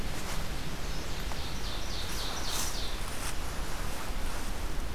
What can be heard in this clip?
Ovenbird